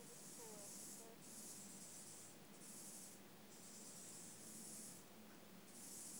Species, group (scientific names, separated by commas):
Chorthippus mollis, Orthoptera